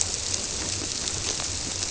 {"label": "biophony", "recorder": "SoundTrap 300"}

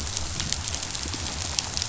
{"label": "biophony", "recorder": "SoundTrap 500"}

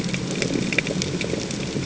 {"label": "ambient", "recorder": "HydroMoth"}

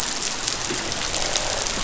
{"label": "biophony, croak", "recorder": "SoundTrap 500"}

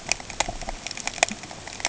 {"label": "ambient", "recorder": "HydroMoth"}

